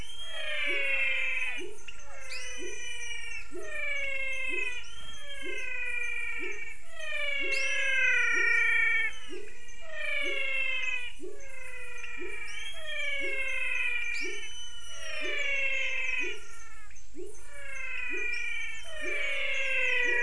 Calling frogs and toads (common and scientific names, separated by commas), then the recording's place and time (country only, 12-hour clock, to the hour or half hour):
Physalaemus cuvieri, pepper frog (Leptodactylus labyrinthicus), menwig frog (Physalaemus albonotatus)
Brazil, 6:30pm